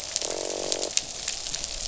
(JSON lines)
{"label": "biophony, croak", "recorder": "SoundTrap 500"}